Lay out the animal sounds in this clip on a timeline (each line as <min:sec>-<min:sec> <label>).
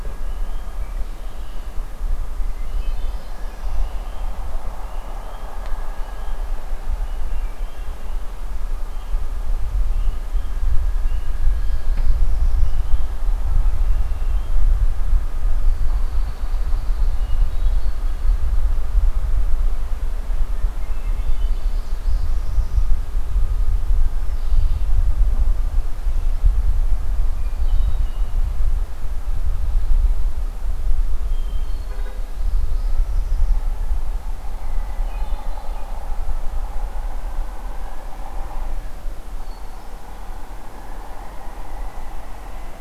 0:00.7-0:01.6 Red-winged Blackbird (Agelaius phoeniceus)
0:02.4-0:03.6 Hermit Thrush (Catharus guttatus)
0:02.5-0:03.9 Northern Parula (Setophaga americana)
0:07.3-0:08.1 Hermit Thrush (Catharus guttatus)
0:11.6-0:12.9 Northern Parula (Setophaga americana)
0:13.5-0:14.5 Red-winged Blackbird (Agelaius phoeniceus)
0:15.6-0:18.4 Red-winged Blackbird (Agelaius phoeniceus)
0:20.5-0:21.8 Hermit Thrush (Catharus guttatus)
0:21.6-0:22.9 Northern Parula (Setophaga americana)
0:24.1-0:24.9 Red-winged Blackbird (Agelaius phoeniceus)
0:27.2-0:28.5 Hermit Thrush (Catharus guttatus)
0:31.3-0:32.4 Hermit Thrush (Catharus guttatus)
0:32.4-0:33.7 Northern Parula (Setophaga americana)
0:34.5-0:35.6 Hermit Thrush (Catharus guttatus)
0:39.3-0:40.1 Hermit Thrush (Catharus guttatus)